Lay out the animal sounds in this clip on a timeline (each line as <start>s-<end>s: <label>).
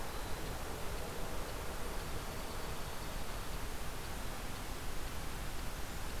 2.0s-3.6s: Dark-eyed Junco (Junco hyemalis)